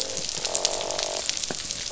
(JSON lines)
{"label": "biophony, croak", "recorder": "SoundTrap 500"}